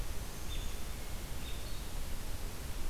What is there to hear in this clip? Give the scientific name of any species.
Turdus migratorius